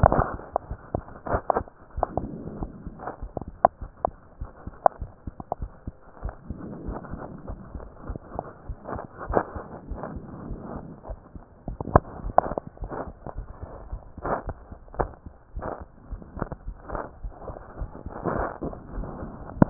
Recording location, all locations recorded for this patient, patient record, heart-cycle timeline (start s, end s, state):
pulmonary valve (PV)
aortic valve (AV)+pulmonary valve (PV)+tricuspid valve (TV)+mitral valve (MV)
#Age: Adolescent
#Sex: Female
#Height: 58.0 cm
#Weight: 51.6 kg
#Pregnancy status: False
#Murmur: Unknown
#Murmur locations: nan
#Most audible location: nan
#Systolic murmur timing: nan
#Systolic murmur shape: nan
#Systolic murmur grading: nan
#Systolic murmur pitch: nan
#Systolic murmur quality: nan
#Diastolic murmur timing: nan
#Diastolic murmur shape: nan
#Diastolic murmur grading: nan
#Diastolic murmur pitch: nan
#Diastolic murmur quality: nan
#Outcome: Abnormal
#Campaign: 2015 screening campaign
0.00	3.18	unannotated
3.18	3.30	S1
3.30	3.46	systole
3.46	3.58	S2
3.58	3.82	diastole
3.82	3.90	S1
3.90	4.04	systole
4.04	4.14	S2
4.14	4.40	diastole
4.40	4.50	S1
4.50	4.66	systole
4.66	4.76	S2
4.76	5.00	diastole
5.00	5.10	S1
5.10	5.26	systole
5.26	5.32	S2
5.32	5.58	diastole
5.58	5.72	S1
5.72	5.86	systole
5.86	5.94	S2
5.94	6.20	diastole
6.20	6.34	S1
6.34	6.48	systole
6.48	6.58	S2
6.58	6.82	diastole
6.82	7.00	S1
7.00	7.12	systole
7.12	7.22	S2
7.22	7.46	diastole
7.46	7.60	S1
7.60	7.72	systole
7.72	7.84	S2
7.84	8.08	diastole
8.08	8.20	S1
8.20	8.34	systole
8.34	8.44	S2
8.44	8.68	diastole
8.68	8.78	S1
8.78	8.90	systole
8.90	9.02	S2
9.02	9.26	diastole
9.26	9.44	S1
9.44	9.54	systole
9.54	9.64	S2
9.64	9.88	diastole
9.88	10.00	S1
10.00	10.10	systole
10.10	10.24	S2
10.24	10.44	diastole
10.44	10.60	S1
10.60	10.72	systole
10.72	10.84	S2
10.84	11.08	diastole
11.08	11.20	S1
11.20	11.36	systole
11.36	11.42	S2
11.42	11.68	diastole
11.68	11.78	S1
11.78	11.92	systole
11.92	12.04	S2
12.04	12.24	diastole
12.24	12.36	S1
12.36	12.46	systole
12.46	12.58	S2
12.58	12.80	diastole
12.80	12.92	S1
12.92	13.06	systole
13.06	13.14	S2
13.14	13.36	diastole
13.36	13.45	S1
13.45	19.70	unannotated